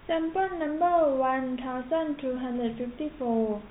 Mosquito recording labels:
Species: no mosquito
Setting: cup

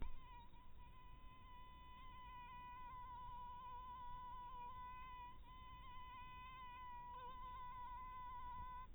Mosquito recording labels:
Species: mosquito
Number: one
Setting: cup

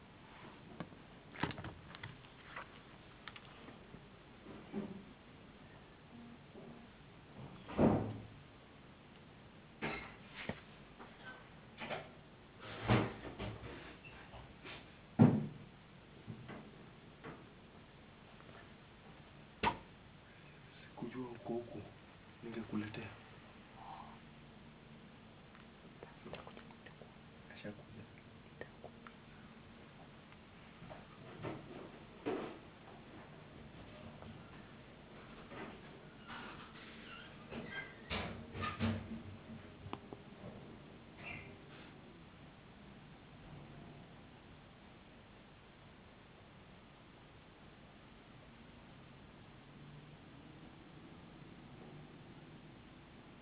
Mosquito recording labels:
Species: no mosquito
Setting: insect culture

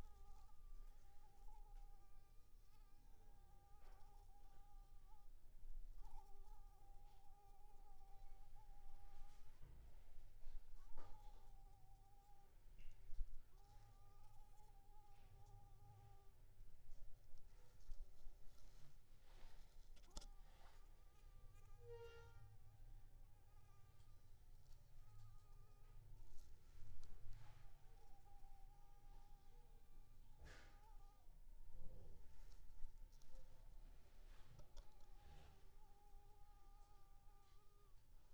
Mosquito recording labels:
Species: Anopheles arabiensis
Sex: female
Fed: unfed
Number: one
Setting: cup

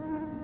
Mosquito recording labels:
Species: Culex tarsalis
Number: one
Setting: insect culture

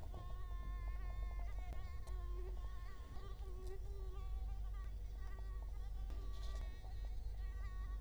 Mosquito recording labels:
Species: Culex quinquefasciatus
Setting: cup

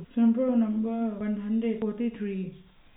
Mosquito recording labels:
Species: no mosquito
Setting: cup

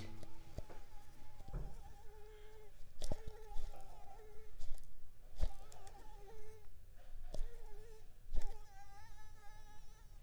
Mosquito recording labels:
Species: Anopheles pharoensis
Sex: female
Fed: unfed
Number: one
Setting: cup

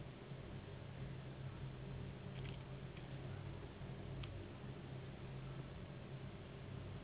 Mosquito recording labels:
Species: Anopheles gambiae s.s.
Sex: female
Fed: unfed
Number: one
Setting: insect culture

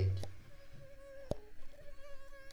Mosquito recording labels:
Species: Culex pipiens complex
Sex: female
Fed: unfed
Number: one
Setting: cup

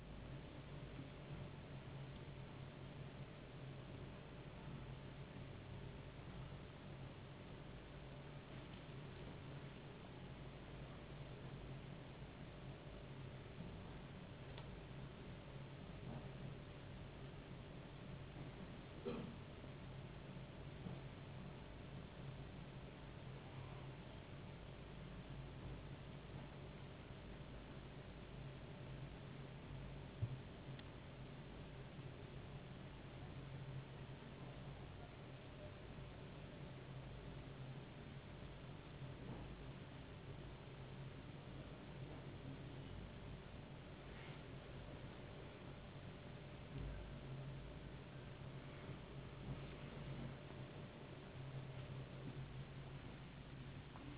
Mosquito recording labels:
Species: no mosquito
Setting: insect culture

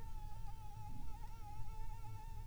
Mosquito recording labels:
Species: Anopheles arabiensis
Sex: female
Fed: unfed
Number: one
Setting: cup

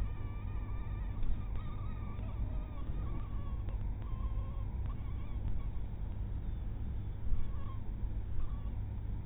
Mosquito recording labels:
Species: mosquito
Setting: cup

